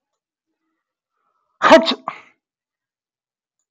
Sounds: Sneeze